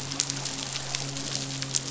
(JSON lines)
{"label": "biophony, midshipman", "recorder": "SoundTrap 500"}